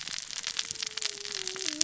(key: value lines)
label: biophony, cascading saw
recorder: SoundTrap 600 or HydroMoth